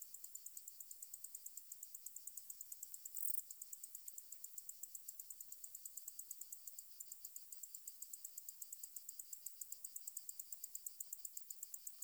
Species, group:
Decticus albifrons
Orthoptera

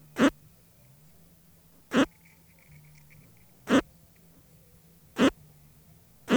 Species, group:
Poecilimon luschani
Orthoptera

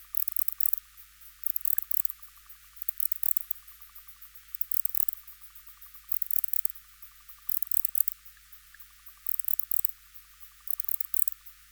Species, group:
Barbitistes yersini
Orthoptera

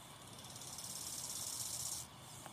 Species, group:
Chorthippus biguttulus
Orthoptera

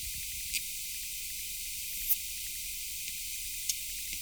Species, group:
Poecilimon thoracicus
Orthoptera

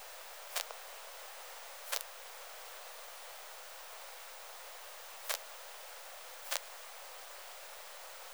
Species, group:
Poecilimon macedonicus
Orthoptera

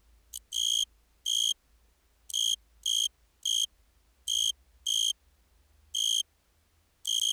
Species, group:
Oecanthus pellucens
Orthoptera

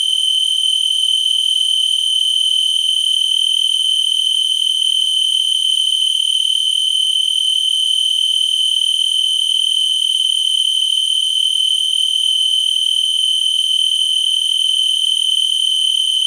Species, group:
Oecanthus dulcisonans
Orthoptera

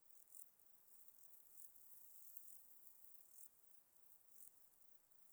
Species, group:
Euchorthippus elegantulus
Orthoptera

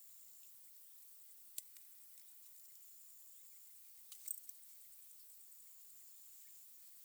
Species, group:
Pteronemobius heydenii
Orthoptera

